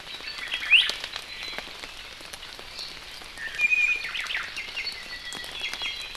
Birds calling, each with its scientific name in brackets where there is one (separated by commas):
Omao (Myadestes obscurus), Iiwi (Drepanis coccinea), Apapane (Himatione sanguinea)